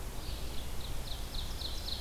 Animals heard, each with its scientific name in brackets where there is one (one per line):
Ovenbird (Seiurus aurocapilla)
Red-eyed Vireo (Vireo olivaceus)